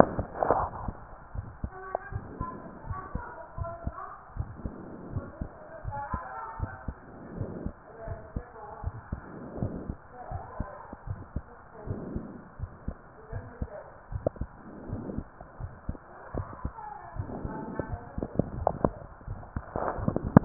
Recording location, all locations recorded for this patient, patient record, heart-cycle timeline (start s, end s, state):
pulmonary valve (PV)
aortic valve (AV)+pulmonary valve (PV)+tricuspid valve (TV)+mitral valve (MV)
#Age: Child
#Sex: Female
#Height: 130.0 cm
#Weight: 36.9 kg
#Pregnancy status: False
#Murmur: Present
#Murmur locations: aortic valve (AV)+mitral valve (MV)+pulmonary valve (PV)+tricuspid valve (TV)
#Most audible location: pulmonary valve (PV)
#Systolic murmur timing: Early-systolic
#Systolic murmur shape: Plateau
#Systolic murmur grading: II/VI
#Systolic murmur pitch: Low
#Systolic murmur quality: Blowing
#Diastolic murmur timing: nan
#Diastolic murmur shape: nan
#Diastolic murmur grading: nan
#Diastolic murmur pitch: nan
#Diastolic murmur quality: nan
#Outcome: Abnormal
#Campaign: 2015 screening campaign
0.00	2.10	unannotated
2.10	2.26	S1
2.26	2.38	systole
2.38	2.48	S2
2.48	2.86	diastole
2.86	2.98	S1
2.98	3.10	systole
3.10	3.24	S2
3.24	3.56	diastole
3.56	3.72	S1
3.72	3.82	systole
3.82	3.96	S2
3.96	4.38	diastole
4.38	4.54	S1
4.54	4.62	systole
4.62	4.72	S2
4.72	5.10	diastole
5.10	5.24	S1
5.24	5.38	systole
5.38	5.50	S2
5.50	5.84	diastole
5.84	5.98	S1
5.98	6.10	systole
6.10	6.20	S2
6.20	6.58	diastole
6.58	6.74	S1
6.74	6.84	systole
6.84	6.94	S2
6.94	7.34	diastole
7.34	7.50	S1
7.50	7.64	systole
7.64	7.72	S2
7.72	8.08	diastole
8.08	8.20	S1
8.20	8.32	systole
8.32	8.46	S2
8.46	8.84	diastole
8.84	8.92	S1
8.92	9.10	systole
9.10	9.20	S2
9.20	9.58	diastole
9.58	9.71	S1
9.71	9.88	systole
9.88	9.98	S2
9.98	10.30	diastole
10.30	10.44	S1
10.44	10.56	systole
10.56	10.70	S2
10.70	11.08	diastole
11.08	11.22	S1
11.22	11.32	systole
11.32	11.44	S2
11.44	11.87	diastole
11.87	11.99	S1
11.99	12.14	systole
12.14	12.23	S2
12.23	12.60	diastole
12.60	12.72	S1
12.72	12.84	systole
12.84	12.94	S2
12.94	13.32	diastole
13.32	13.44	S1
13.44	13.58	systole
13.58	13.68	S2
13.68	14.12	diastole
14.12	14.24	S1
14.24	14.36	systole
14.36	14.48	S2
14.48	14.88	diastole
14.88	15.06	S1
15.06	15.16	systole
15.16	15.26	S2
15.26	15.58	diastole
15.58	15.71	S1
15.71	15.86	systole
15.86	15.97	S2
15.97	16.34	diastole
16.34	16.48	S1
16.48	16.60	systole
16.60	16.72	S2
16.72	17.16	diastole
17.16	17.25	S1
17.25	17.43	systole
17.43	17.49	S2
17.49	20.45	unannotated